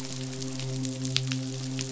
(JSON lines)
{"label": "biophony, midshipman", "recorder": "SoundTrap 500"}